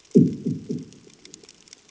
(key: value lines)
label: anthrophony, bomb
recorder: HydroMoth